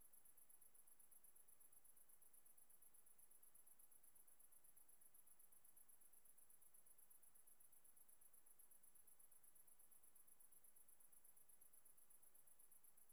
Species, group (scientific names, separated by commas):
Tettigonia viridissima, Orthoptera